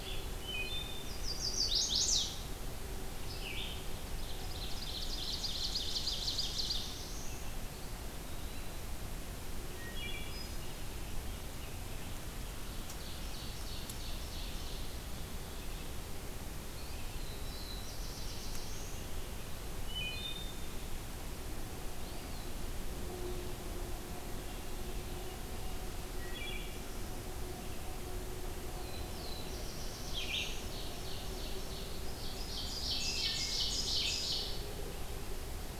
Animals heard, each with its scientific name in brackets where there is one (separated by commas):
Eastern Wood-Pewee (Contopus virens), Black-throated Blue Warbler (Setophaga caerulescens), Red-eyed Vireo (Vireo olivaceus), Chestnut-sided Warbler (Setophaga pensylvanica), Ovenbird (Seiurus aurocapilla), Wood Thrush (Hylocichla mustelina)